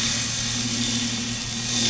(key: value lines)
label: anthrophony, boat engine
recorder: SoundTrap 500